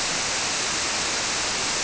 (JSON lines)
{"label": "biophony", "recorder": "SoundTrap 300"}